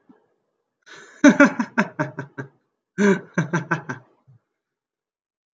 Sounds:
Laughter